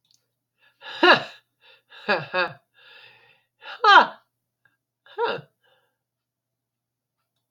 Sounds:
Laughter